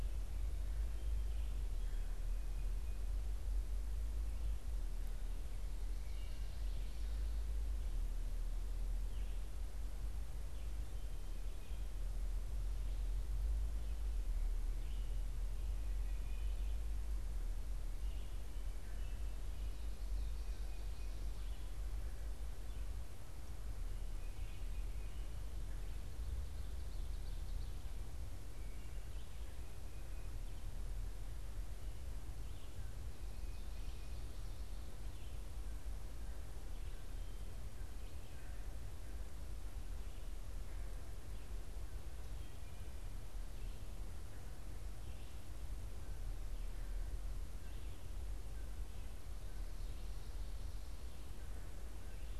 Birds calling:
Red-eyed Vireo (Vireo olivaceus)
Tufted Titmouse (Baeolophus bicolor)

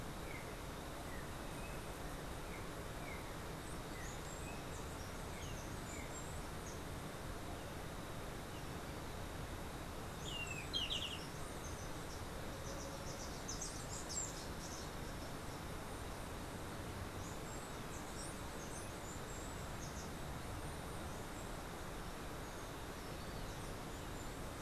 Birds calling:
Golden-faced Tyrannulet (Zimmerius chrysops)
Yellow-backed Oriole (Icterus chrysater)
Steely-vented Hummingbird (Saucerottia saucerottei)

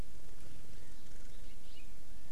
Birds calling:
House Finch (Haemorhous mexicanus)

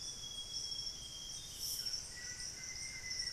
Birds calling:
Amazonian Grosbeak (Cyanoloxia rothschildii)
White-throated Toucan (Ramphastos tucanus)
Solitary Black Cacique (Cacicus solitarius)
Black-faced Antthrush (Formicarius analis)
Buff-breasted Wren (Cantorchilus leucotis)

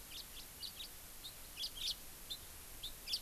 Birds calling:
House Finch (Haemorhous mexicanus)

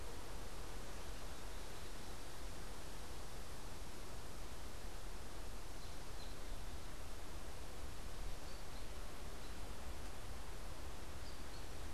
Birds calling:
American Robin (Turdus migratorius)

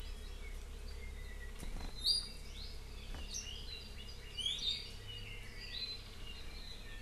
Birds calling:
Iiwi (Drepanis coccinea)

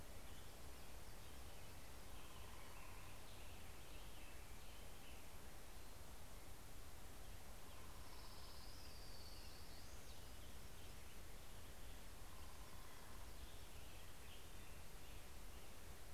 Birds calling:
Hermit Warbler (Setophaga occidentalis)
Black-headed Grosbeak (Pheucticus melanocephalus)
Orange-crowned Warbler (Leiothlypis celata)

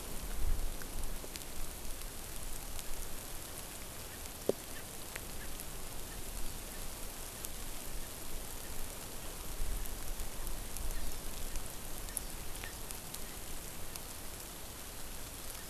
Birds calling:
Hawaii Amakihi (Chlorodrepanis virens)
Erckel's Francolin (Pternistis erckelii)

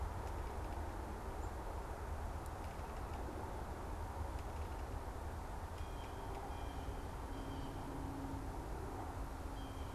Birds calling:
Blue Jay (Cyanocitta cristata)

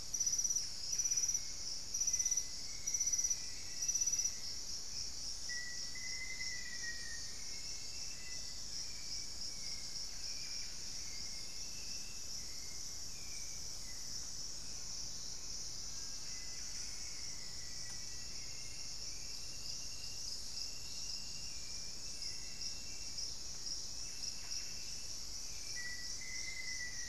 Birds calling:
Cinereous Tinamou (Crypturellus cinereus)
Black-faced Antthrush (Formicarius analis)
Buff-breasted Wren (Cantorchilus leucotis)
Hauxwell's Thrush (Turdus hauxwelli)

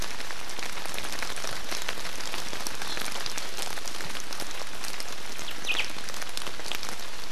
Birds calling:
Omao (Myadestes obscurus)

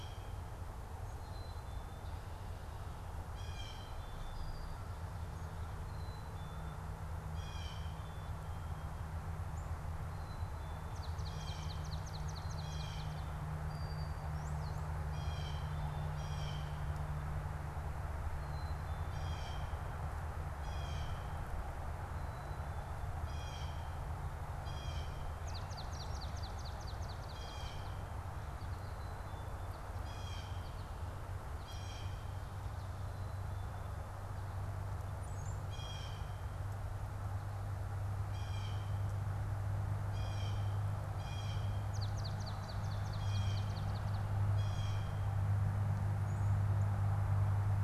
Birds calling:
American Goldfinch (Spinus tristis)
Blue Jay (Cyanocitta cristata)
Swamp Sparrow (Melospiza georgiana)
Brown-headed Cowbird (Molothrus ater)

